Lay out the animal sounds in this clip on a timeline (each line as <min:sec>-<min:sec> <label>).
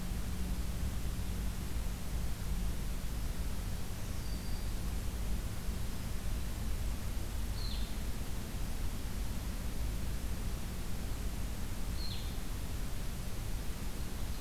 0:03.6-0:04.8 Black-throated Green Warbler (Setophaga virens)
0:07.4-0:08.0 Blue-headed Vireo (Vireo solitarius)
0:11.7-0:12.5 Blue-headed Vireo (Vireo solitarius)